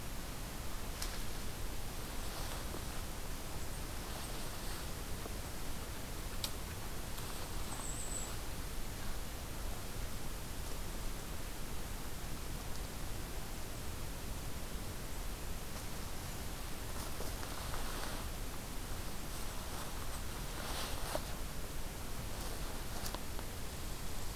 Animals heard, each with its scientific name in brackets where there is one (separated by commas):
Golden-crowned Kinglet (Regulus satrapa)